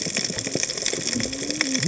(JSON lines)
{"label": "biophony, cascading saw", "recorder": "HydroMoth"}